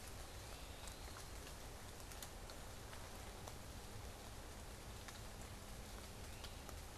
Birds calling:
Eastern Wood-Pewee (Contopus virens), Great Crested Flycatcher (Myiarchus crinitus)

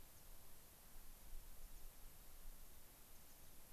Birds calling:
American Pipit (Anthus rubescens)

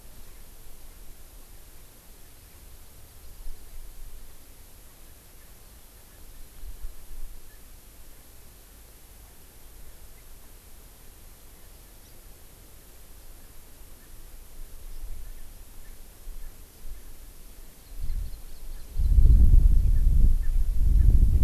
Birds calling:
Hawaii Amakihi (Chlorodrepanis virens)

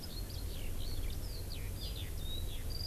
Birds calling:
Eurasian Skylark (Alauda arvensis)

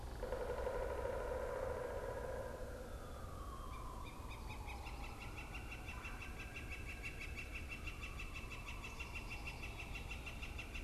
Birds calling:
Northern Flicker (Colaptes auratus), Pileated Woodpecker (Dryocopus pileatus), Black-capped Chickadee (Poecile atricapillus)

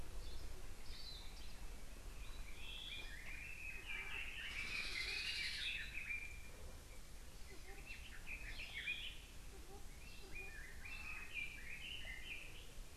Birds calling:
Hawaii Akepa (Loxops coccineus), Red-billed Leiothrix (Leiothrix lutea)

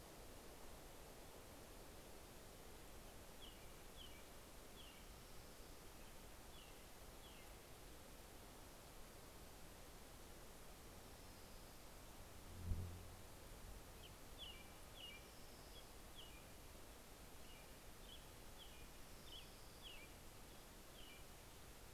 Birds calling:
American Robin (Turdus migratorius), Orange-crowned Warbler (Leiothlypis celata)

